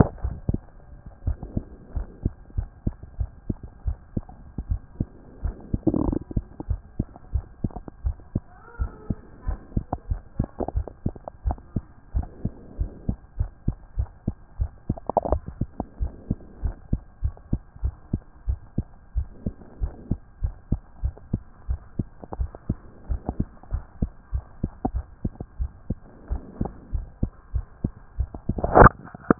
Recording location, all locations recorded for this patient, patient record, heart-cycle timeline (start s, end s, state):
mitral valve (MV)
aortic valve (AV)+pulmonary valve (PV)+tricuspid valve (TV)+mitral valve (MV)
#Age: Child
#Sex: Male
#Height: 121.0 cm
#Weight: 20.7 kg
#Pregnancy status: False
#Murmur: Absent
#Murmur locations: nan
#Most audible location: nan
#Systolic murmur timing: nan
#Systolic murmur shape: nan
#Systolic murmur grading: nan
#Systolic murmur pitch: nan
#Systolic murmur quality: nan
#Diastolic murmur timing: nan
#Diastolic murmur shape: nan
#Diastolic murmur grading: nan
#Diastolic murmur pitch: nan
#Diastolic murmur quality: nan
#Outcome: Normal
#Campaign: 2014 screening campaign
0.24	0.34	S1
0.34	0.48	systole
0.48	0.62	S2
0.62	1.26	diastole
1.26	1.38	S1
1.38	1.54	systole
1.54	1.64	S2
1.64	1.94	diastole
1.94	2.06	S1
2.06	2.24	systole
2.24	2.32	S2
2.32	2.56	diastole
2.56	2.68	S1
2.68	2.84	systole
2.84	2.94	S2
2.94	3.18	diastole
3.18	3.30	S1
3.30	3.48	systole
3.48	3.56	S2
3.56	3.86	diastole
3.86	3.98	S1
3.98	4.14	systole
4.14	4.24	S2
4.24	4.68	diastole
4.68	4.80	S1
4.80	4.98	systole
4.98	5.08	S2
5.08	5.44	diastole
5.44	5.54	S1
5.54	5.72	systole
5.72	5.80	S2
5.80	6.04	diastole
6.04	6.18	S1
6.18	6.34	systole
6.34	6.44	S2
6.44	6.68	diastole
6.68	6.80	S1
6.80	6.98	systole
6.98	7.06	S2
7.06	7.32	diastole
7.32	7.44	S1
7.44	7.62	systole
7.62	7.72	S2
7.72	8.04	diastole
8.04	8.16	S1
8.16	8.34	systole
8.34	8.42	S2
8.42	8.80	diastole
8.80	8.92	S1
8.92	9.08	systole
9.08	9.18	S2
9.18	9.46	diastole
9.46	9.58	S1
9.58	9.74	systole
9.74	9.84	S2
9.84	10.10	diastole
10.10	10.20	S1
10.20	10.38	systole
10.38	10.48	S2
10.48	10.74	diastole
10.74	10.86	S1
10.86	11.04	systole
11.04	11.14	S2
11.14	11.46	diastole
11.46	11.58	S1
11.58	11.74	systole
11.74	11.84	S2
11.84	12.14	diastole
12.14	12.26	S1
12.26	12.44	systole
12.44	12.52	S2
12.52	12.78	diastole
12.78	12.90	S1
12.90	13.08	systole
13.08	13.16	S2
13.16	13.38	diastole
13.38	13.50	S1
13.50	13.66	systole
13.66	13.76	S2
13.76	13.98	diastole
13.98	14.08	S1
14.08	14.26	systole
14.26	14.34	S2
14.34	14.58	diastole
14.58	14.70	S1
14.70	14.88	systole
14.88	14.98	S2
14.98	15.28	diastole
15.28	15.42	S1
15.42	15.60	systole
15.60	15.68	S2
15.68	16.00	diastole
16.00	16.12	S1
16.12	16.28	systole
16.28	16.38	S2
16.38	16.62	diastole
16.62	16.76	S1
16.76	16.92	systole
16.92	17.00	S2
17.00	17.22	diastole
17.22	17.34	S1
17.34	17.52	systole
17.52	17.60	S2
17.60	17.82	diastole
17.82	17.94	S1
17.94	18.12	systole
18.12	18.22	S2
18.22	18.48	diastole
18.48	18.60	S1
18.60	18.76	systole
18.76	18.86	S2
18.86	19.16	diastole
19.16	19.28	S1
19.28	19.44	systole
19.44	19.54	S2
19.54	19.80	diastole
19.80	19.92	S1
19.92	20.10	systole
20.10	20.18	S2
20.18	20.42	diastole
20.42	20.54	S1
20.54	20.70	systole
20.70	20.80	S2
20.80	21.02	diastole
21.02	21.14	S1
21.14	21.32	systole
21.32	21.42	S2
21.42	21.68	diastole
21.68	21.80	S1
21.80	21.98	systole
21.98	22.06	S2
22.06	22.38	diastole
22.38	22.50	S1
22.50	22.68	systole
22.68	22.78	S2
22.78	23.10	diastole
23.10	23.20	S1
23.20	23.38	systole
23.38	23.48	S2
23.48	23.72	diastole
23.72	23.84	S1
23.84	24.00	systole
24.00	24.10	S2
24.10	24.32	diastole
24.32	24.44	S1
24.44	24.62	systole
24.62	24.72	S2
24.72	24.94	diastole
24.94	25.04	S1
25.04	25.22	systole
25.22	25.32	S2
25.32	25.60	diastole
25.60	25.70	S1
25.70	25.88	systole
25.88	25.98	S2
25.98	26.30	diastole
26.30	26.42	S1
26.42	26.60	systole
26.60	26.70	S2
26.70	26.94	diastole
26.94	27.06	S1
27.06	27.22	systole
27.22	27.30	S2
27.30	27.54	diastole
27.54	27.66	S1
27.66	27.82	systole
27.82	27.94	S2
27.94	28.18	diastole
28.18	28.30	S1
28.30	28.48	systole
28.48	28.56	S2
28.56	28.74	diastole
28.74	28.92	S1
28.92	29.08	systole
29.08	29.10	S2
29.10	29.39	diastole